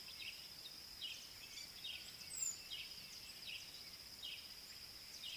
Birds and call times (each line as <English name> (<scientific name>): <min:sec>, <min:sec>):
Southern Black-Flycatcher (Melaenornis pammelaina): 0:02.4
Parrot-billed Sparrow (Passer gongonensis): 0:04.3